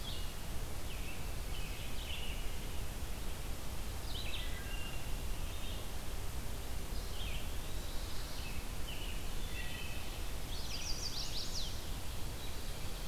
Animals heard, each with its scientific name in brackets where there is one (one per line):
Red-eyed Vireo (Vireo olivaceus)
Chestnut-sided Warbler (Setophaga pensylvanica)
American Robin (Turdus migratorius)
Wood Thrush (Hylocichla mustelina)
Eastern Wood-Pewee (Contopus virens)